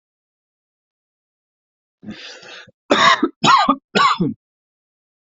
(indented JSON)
{
  "expert_labels": [
    {
      "quality": "good",
      "cough_type": "dry",
      "dyspnea": false,
      "wheezing": false,
      "stridor": false,
      "choking": false,
      "congestion": false,
      "nothing": true,
      "diagnosis": "upper respiratory tract infection",
      "severity": "mild"
    }
  ],
  "age": 24,
  "gender": "male",
  "respiratory_condition": false,
  "fever_muscle_pain": false,
  "status": "healthy"
}